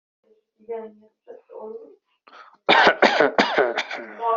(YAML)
expert_labels:
- quality: ok
  cough_type: dry
  dyspnea: false
  wheezing: false
  stridor: false
  choking: false
  congestion: false
  nothing: true
  diagnosis: healthy cough
  severity: pseudocough/healthy cough
gender: female
respiratory_condition: false
fever_muscle_pain: false
status: COVID-19